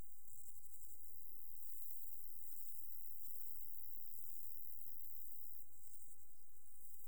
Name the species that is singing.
Pseudochorthippus parallelus